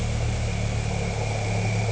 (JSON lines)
{"label": "anthrophony, boat engine", "recorder": "HydroMoth"}